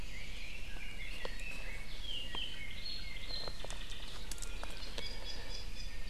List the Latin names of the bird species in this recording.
Leiothrix lutea, Himatione sanguinea, Drepanis coccinea